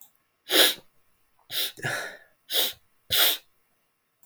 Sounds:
Sniff